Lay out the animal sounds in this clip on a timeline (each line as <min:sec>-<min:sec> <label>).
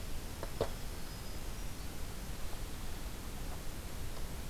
0:00.8-0:01.9 Hermit Thrush (Catharus guttatus)